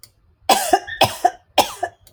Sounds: Cough